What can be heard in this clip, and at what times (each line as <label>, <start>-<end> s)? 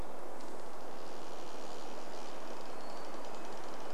tree creak, 0-4 s
Hermit Thrush call, 2-4 s
Red-breasted Nuthatch song, 2-4 s